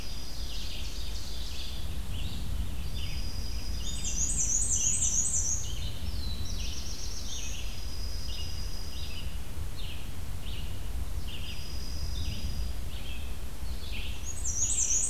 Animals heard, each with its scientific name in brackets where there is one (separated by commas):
Black-and-white Warbler (Mniotilta varia), Red-eyed Vireo (Vireo olivaceus), Black-throated Blue Warbler (Setophaga caerulescens), Ovenbird (Seiurus aurocapilla), Dark-eyed Junco (Junco hyemalis)